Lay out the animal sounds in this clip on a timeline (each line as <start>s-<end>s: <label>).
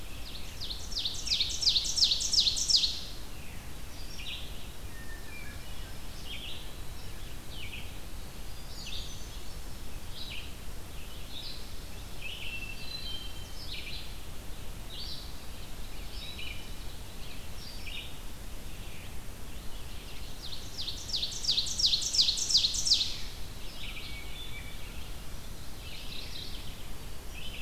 0.0s-3.0s: Ovenbird (Seiurus aurocapilla)
0.0s-27.6s: Red-eyed Vireo (Vireo olivaceus)
3.2s-3.8s: Veery (Catharus fuscescens)
4.9s-6.1s: Hermit Thrush (Catharus guttatus)
8.4s-10.0s: Hermit Thrush (Catharus guttatus)
12.0s-13.8s: Hermit Thrush (Catharus guttatus)
19.8s-23.3s: Ovenbird (Seiurus aurocapilla)
23.9s-24.9s: Hermit Thrush (Catharus guttatus)
25.5s-27.0s: Mourning Warbler (Geothlypis philadelphia)
26.9s-27.6s: Hermit Thrush (Catharus guttatus)